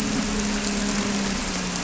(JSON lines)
{"label": "anthrophony, boat engine", "recorder": "SoundTrap 300"}